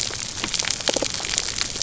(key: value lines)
label: biophony
recorder: SoundTrap 300